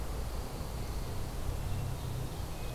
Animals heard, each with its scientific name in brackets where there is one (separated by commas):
Ovenbird (Seiurus aurocapilla), Pine Warbler (Setophaga pinus)